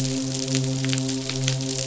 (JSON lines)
{"label": "biophony, midshipman", "recorder": "SoundTrap 500"}